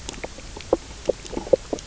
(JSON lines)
{"label": "biophony, knock croak", "recorder": "SoundTrap 300"}